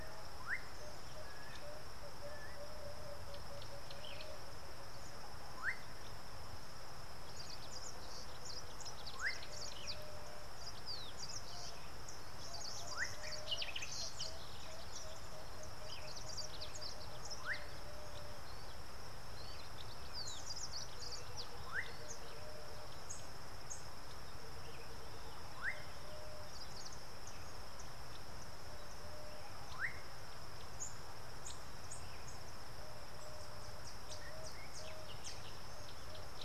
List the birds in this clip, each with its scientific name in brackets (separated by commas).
Yellow Bishop (Euplectes capensis), Slate-colored Boubou (Laniarius funebris), Common Bulbul (Pycnonotus barbatus), African Goshawk (Accipiter tachiro), Emerald-spotted Wood-Dove (Turtur chalcospilos)